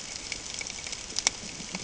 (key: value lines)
label: ambient
recorder: HydroMoth